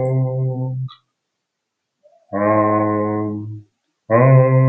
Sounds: Sneeze